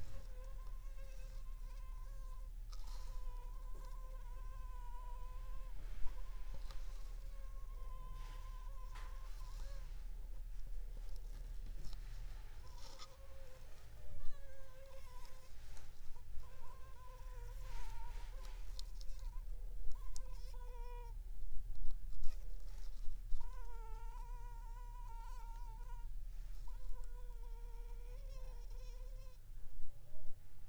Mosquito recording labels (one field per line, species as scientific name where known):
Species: Anopheles funestus s.s.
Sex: female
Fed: unfed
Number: one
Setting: cup